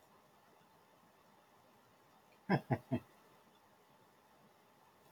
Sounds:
Laughter